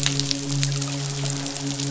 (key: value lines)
label: biophony, midshipman
recorder: SoundTrap 500